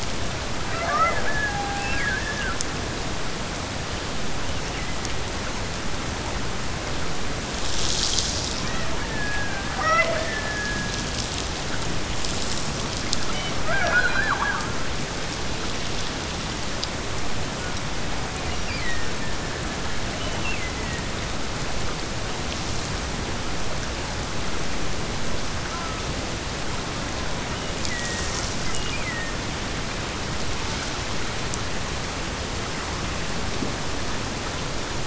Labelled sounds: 0.6	2.7	killer whale, Bigg's (transient), Gulf of Alaska transient, 0.25 to 2.8 kHz
8.5	11.3	killer whale, Bigg's (transient), Gulf of Alaska transient, 0.41 to 4.1 kHz
13.3	14.7	killer whale, Bigg's (transient), Gulf of Alaska transient, 0.41 to 5.2 kHz
18.4	21.2	killer whale, Bigg's (transient), Gulf of Alaska transient, 1.6 to 5.7 kHz
27.4	29.4	killer whale, Bigg's (transient), Gulf of Alaska transient, 1.7 to 3.1 kHz

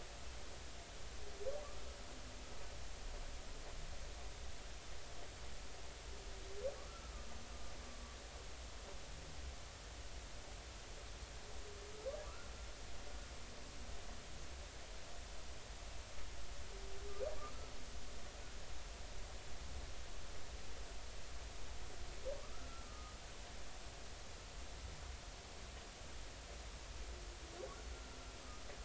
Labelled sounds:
6.8	7.1	humpback whale, 1.0 to 1.5 kHz
12.3	12.5	humpback whale, 1.1 to 1.5 kHz
22.4	23.2	humpback whale, 1.1 to 1.4 kHz

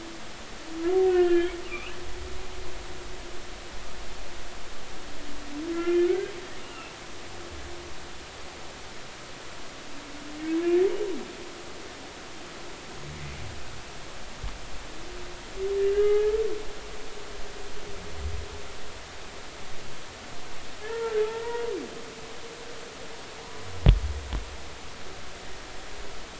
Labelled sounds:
1.0	2.0	humpback whale, 1.3 to 3.3 kHz
5.7	6.3	humpback whale, 1.3 to 2.5 kHz
6.6	6.9	humpback whale, 2.5 to 2.9 kHz
16.0	16.2	humpback whale, 1.2 to 1.3 kHz
20.9	21.7	humpback whale, 0.83 to 2.0 kHz

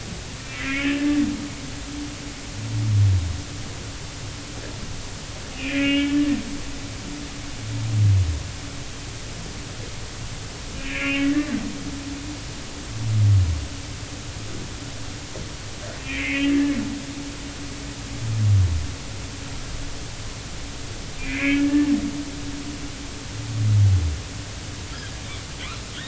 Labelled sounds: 0.5	1.2	humpback whale, 1.6 to 2.6 kHz
5.5	6.2	humpback whale, 1.6 to 3.2 kHz
10.8	11.3	humpback whale, 2.0 to 2.9 kHz
16.0	16.5	humpback whale, 1.9 to 2.6 kHz
21.2	21.9	humpback whale, 1.6 to 2.6 kHz

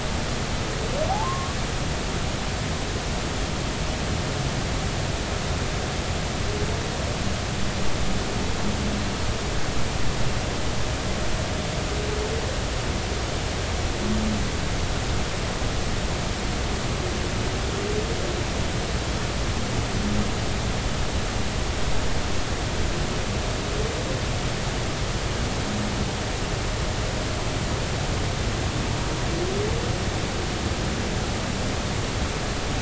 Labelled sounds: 1.1	1.6	humpback whale, 0.80 to 1.2 kHz

